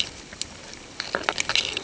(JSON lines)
{"label": "ambient", "recorder": "HydroMoth"}